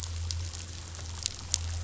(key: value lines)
label: anthrophony, boat engine
recorder: SoundTrap 500